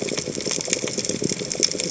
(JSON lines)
{"label": "biophony, chatter", "recorder": "HydroMoth"}